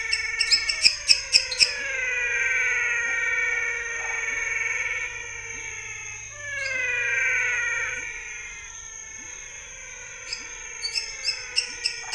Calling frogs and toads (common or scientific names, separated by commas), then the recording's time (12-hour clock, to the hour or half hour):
pepper frog, menwig frog, waxy monkey tree frog, lesser tree frog
7:30pm